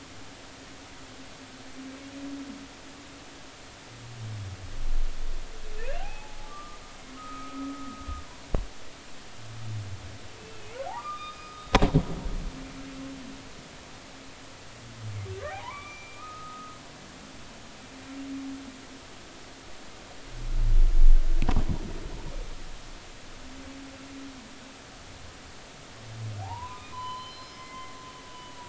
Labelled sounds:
5.8	6.8	humpback whale, 0.80 to 2.8 kHz
7.2	8.0	humpback whale, 1.2 to 1.4 kHz
10.4	11.7	humpback whale, 1.1 to 5.0 kHz
15.5	16.8	humpback whale, 0.80 to 2.6 kHz
26.4	27.9	humpback whale, 0.80 to 5.2 kHz
28.3	28.6	humpback whale, 2.9 to 3.0 kHz

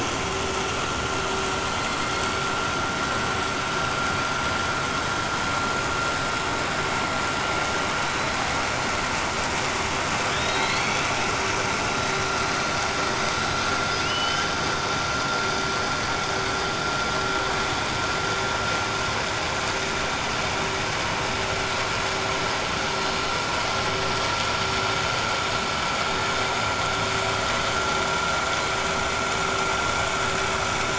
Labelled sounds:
13.8	14.5	killer whale, 2.1 to 5.1 kHz

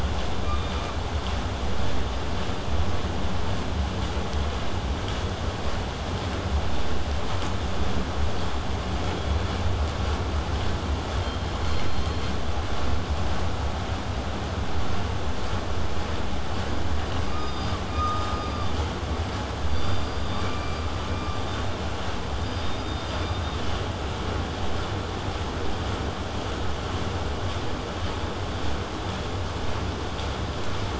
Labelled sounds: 0.4	1.0	killer whale, southern resident, K pod, call S16, 0.93 to 5.0 kHz
11.1	12.3	killer whale, southern resident, K pod, call S17, 2.8 to 5.4 kHz

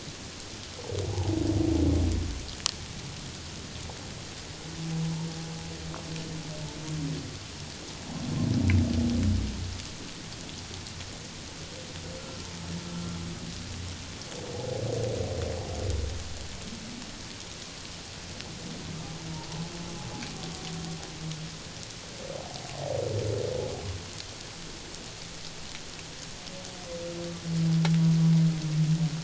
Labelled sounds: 12.2	12.5	humpback whale, 1.3 to 1.4 kHz
12.9	13.2	humpback whale, 1.3 to 1.4 kHz
19.3	19.6	humpback whale, 0.81 to 1.0 kHz

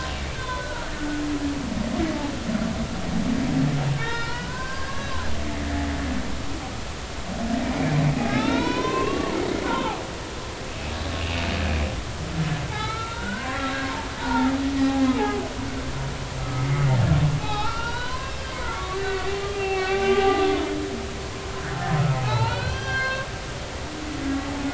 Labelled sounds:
0.4	0.9	humpback whale, 1.3 to 3.6 kHz
4.0	5.1	humpback whale, 0.90 to 3.8 kHz
8.3	10.0	humpback whale, 0.80 to 4.2 kHz
12.7	14.5	humpback whale, 0.80 to 4.1 kHz
16.4	20.4	humpback whale, 0.80 to 4.3 kHz
22.2	23.3	humpback whale, 0.80 to 5.9 kHz

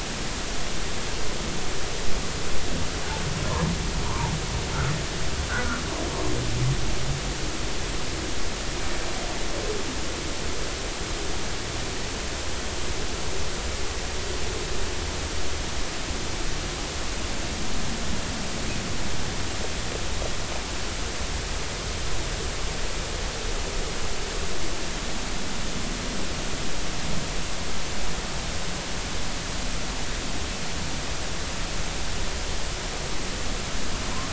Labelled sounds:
5.5	5.8	humpback whale, 1.2 to 1.7 kHz

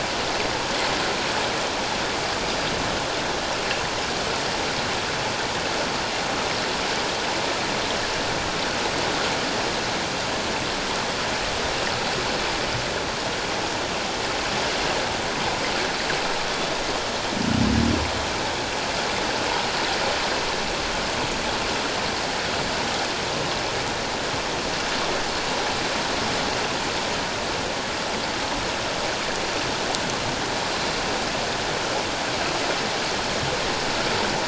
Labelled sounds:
30.7	31.0	Pacific white-sided dolphin, 4.0 to 4.2 kHz

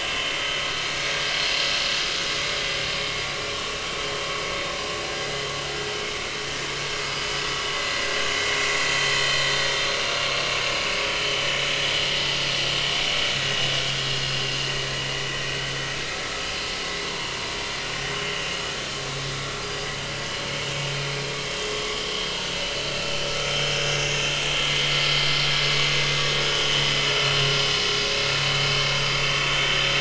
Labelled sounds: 3.2	3.6	vessel noise, 2.3 to 2.4 kHz
17.1	17.3	vessel noise, 0.90 to 1.1 kHz
19.6	19.9	vessel noise, 4.8 to 5.0 kHz
22.1	22.3	vessel noise, 3.2 to 3.3 kHz
23.5	23.7	vessel noise, 5.1 to 5.4 kHz

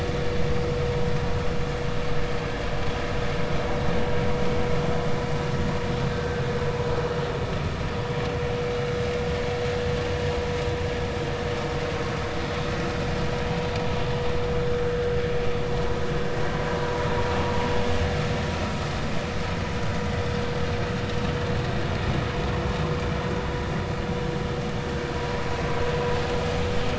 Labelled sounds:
6.1	6.4	vessel noise, 1.5 to 1.6 kHz
14.8	15.1	vessel noise, 1.4 to 1.8 kHz

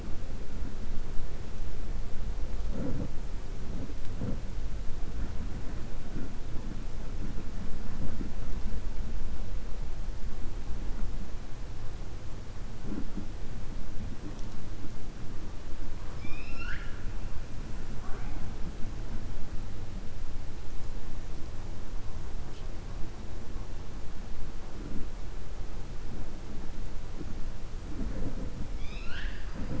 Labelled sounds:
16.0	17.1	killer whale, 1.0 to 5.5 kHz

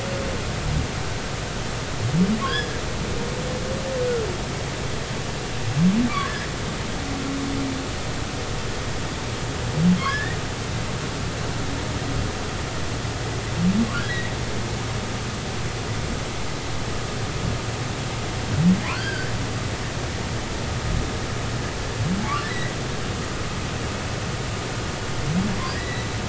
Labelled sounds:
2.4	2.7	humpback whale, 3.1 to 5.2 kHz
4.0	4.3	humpback whale, 1.3 to 1.5 kHz
6.2	6.5	humpback whale, 1.5 to 1.8 kHz
10.1	10.4	humpback whale, 1.5 to 2.0 kHz
18.9	19.3	humpback whale, 1.3 to 4.9 kHz
25.7	26.1	humpback whale, 1.8 to 4.0 kHz

